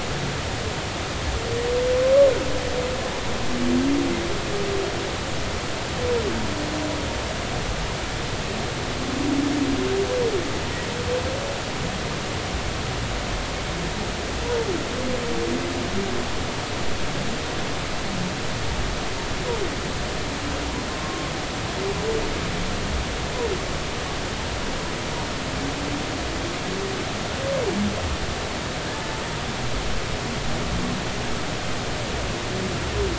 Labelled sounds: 20.9	21.3	humpback whale, 1.0 to 1.2 kHz

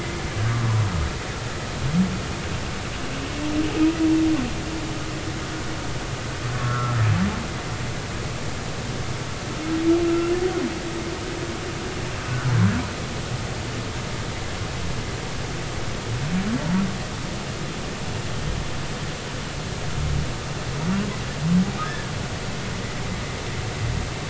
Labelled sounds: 6.5	7.0	humpback whale, 1.1 to 1.6 kHz
10.0	10.3	humpback whale, 1.3 to 1.4 kHz
21.8	22.1	humpback whale, 1.5 to 1.8 kHz

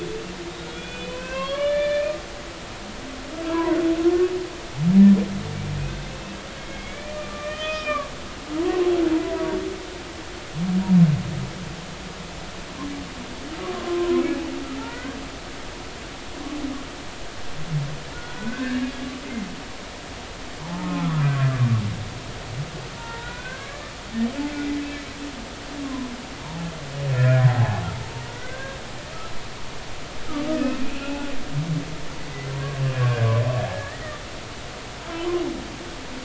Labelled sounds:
0.7	2.2	humpback whale, 0.96 to 3.6 kHz
3.5	3.8	humpback whale, 0.90 to 1.1 kHz
6.6	8.1	humpback whale, 1.1 to 3.8 kHz
8.6	9.4	humpback whale, 0.90 to 1.2 kHz
13.7	14.2	humpback whale, 0.93 to 1.2 kHz
14.8	15.2	humpback whale, 1.3 to 1.7 kHz
18.4	18.8	humpback whale, 1.4 to 1.9 kHz
19.2	19.5	humpback whale, 2.0 to 2.2 kHz
20.6	21.3	humpback whale, 0.83 to 1.4 kHz
23.0	23.9	humpback whale, 0.86 to 2.0 kHz
25.8	26.1	humpback whale, 0.96 to 1.1 kHz
27.2	27.9	humpback whale, 0.80 to 1.6 kHz
28.4	28.8	humpback whale, 1.4 to 1.7 kHz
30.5	31.3	humpback whale, 2.4 to 2.7 kHz
32.9	34.2	humpback whale, 1.5 to 2.0 kHz

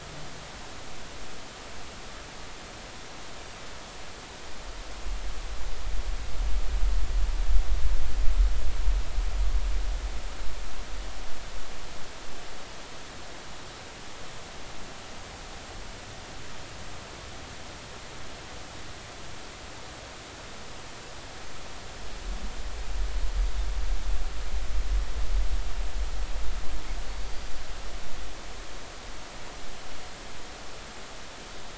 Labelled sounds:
27.0	27.5	Pacific white-sided dolphin, 4.4 to 4.8 kHz

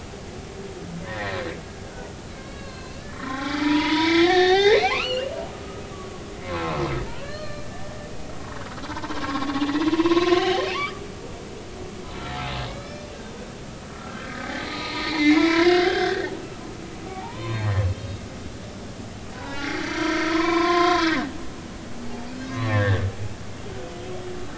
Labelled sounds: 1.0	6.8	humpback whale, 0.80 to 4.5 kHz
7.2	7.7	humpback whale, 1.1 to 4.4 kHz
8.9	11.0	humpback whale, 0.86 to 3.2 kHz
12.7	13.1	humpback whale, 2.1 to 2.4 kHz
13.9	18.7	humpback whale, 0.80 to 5.3 kHz
19.3	21.3	humpback whale, 0.83 to 4.8 kHz
22.0	23.0	humpback whale, 0.80 to 4.0 kHz

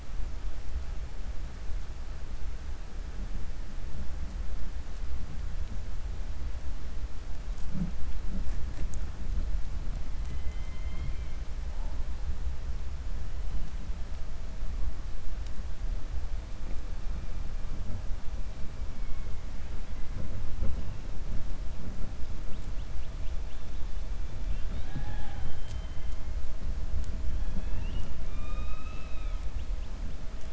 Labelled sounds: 28.2	29.4	killer whale, 0.56 to 4.0 kHz

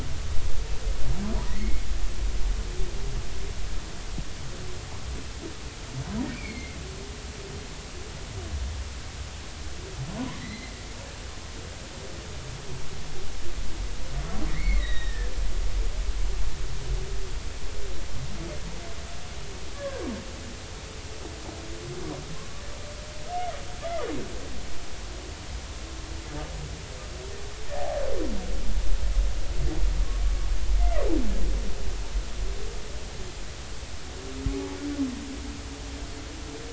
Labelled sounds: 1.4	1.9	humpback whale, 1.8 to 2.3 kHz
6.3	6.8	humpback whale, 2.0 to 4.4 kHz
10.1	10.7	humpback whale, 0.86 to 2.2 kHz
14.5	15.3	humpback whale, 1.6 to 3.9 kHz
19.7	20.1	humpback whale, 0.99 to 1.8 kHz
30.8	31.1	humpback whale, 1.9 to 2.1 kHz

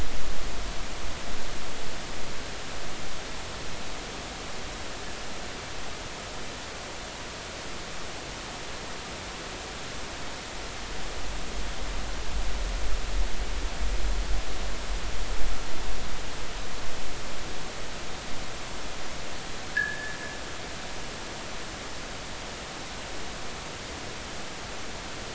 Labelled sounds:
19.7	20.2	fishing gear, 1.6 to 1.8 kHz

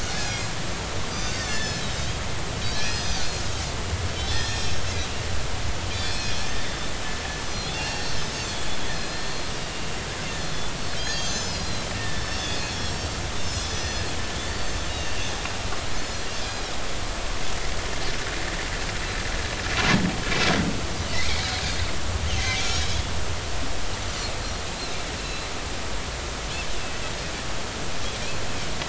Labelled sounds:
0.0	0.5	Pacific white-sided dolphin, 2.4 to 5.2 kHz
1.0	2.1	Pacific white-sided dolphin, 1.7 to 8.0 kHz
2.6	4.8	Pacific white-sided dolphin, 1.7 to 6.9 kHz
5.9	6.8	Pacific white-sided dolphin, 2.4 to 5.7 kHz
7.7	9.2	Pacific white-sided dolphin, 1.6 to 6.5 kHz
11.0	13.1	Pacific white-sided dolphin, 1.7 to 7.1 kHz
13.4	15.2	Pacific white-sided dolphin, 2.6 to 6.0 kHz
16.4	16.7	Pacific white-sided dolphin, 2.4 to 2.5 kHz
21.2	22.6	Pacific white-sided dolphin, 2.1 to 6.4 kHz
25.2	25.5	Pacific white-sided dolphin, 2.5 to 2.8 kHz

